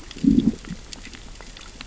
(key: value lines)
label: biophony, growl
recorder: SoundTrap 600 or HydroMoth